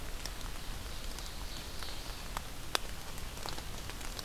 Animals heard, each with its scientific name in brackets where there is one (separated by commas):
Ovenbird (Seiurus aurocapilla)